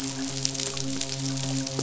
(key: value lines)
label: biophony, midshipman
recorder: SoundTrap 500